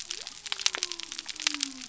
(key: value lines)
label: biophony
recorder: SoundTrap 300